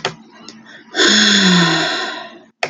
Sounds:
Sigh